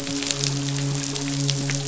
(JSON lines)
{"label": "biophony, midshipman", "recorder": "SoundTrap 500"}